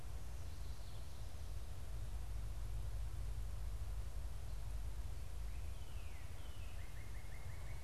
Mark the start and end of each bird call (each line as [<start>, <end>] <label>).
[5.46, 7.83] Northern Cardinal (Cardinalis cardinalis)